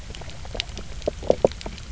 {"label": "biophony, knock croak", "recorder": "SoundTrap 300"}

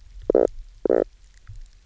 {"label": "biophony, knock croak", "recorder": "SoundTrap 300"}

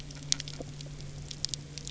{"label": "anthrophony, boat engine", "recorder": "SoundTrap 300"}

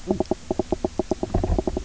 {"label": "biophony, knock croak", "recorder": "SoundTrap 300"}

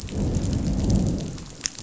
{"label": "biophony, growl", "recorder": "SoundTrap 500"}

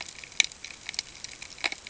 {"label": "ambient", "recorder": "HydroMoth"}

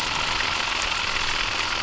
{"label": "anthrophony, boat engine", "recorder": "SoundTrap 300"}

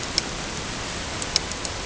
{"label": "ambient", "recorder": "HydroMoth"}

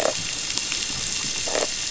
{"label": "anthrophony, boat engine", "recorder": "SoundTrap 500"}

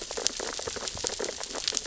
{"label": "biophony, sea urchins (Echinidae)", "recorder": "SoundTrap 600 or HydroMoth"}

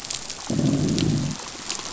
{"label": "biophony, growl", "recorder": "SoundTrap 500"}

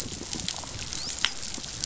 {"label": "biophony, dolphin", "recorder": "SoundTrap 500"}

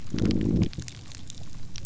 {"label": "biophony", "recorder": "SoundTrap 300"}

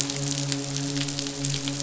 {"label": "biophony, midshipman", "recorder": "SoundTrap 500"}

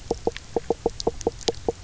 {"label": "biophony, knock croak", "recorder": "SoundTrap 300"}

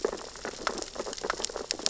{"label": "biophony, sea urchins (Echinidae)", "recorder": "SoundTrap 600 or HydroMoth"}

